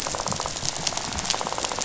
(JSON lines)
{"label": "biophony, rattle", "recorder": "SoundTrap 500"}